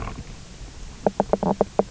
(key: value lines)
label: biophony, knock croak
recorder: SoundTrap 300